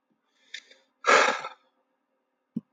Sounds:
Sigh